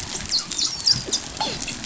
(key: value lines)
label: biophony, dolphin
recorder: SoundTrap 500